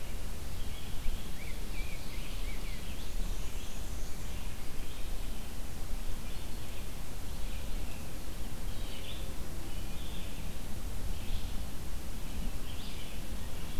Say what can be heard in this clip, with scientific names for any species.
Vireo olivaceus, Pheucticus ludovicianus, Seiurus aurocapilla, Mniotilta varia